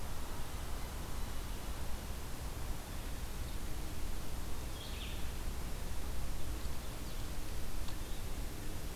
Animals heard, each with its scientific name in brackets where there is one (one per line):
Red-eyed Vireo (Vireo olivaceus)